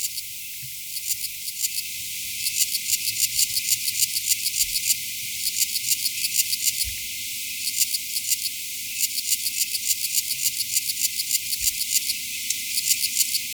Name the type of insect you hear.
orthopteran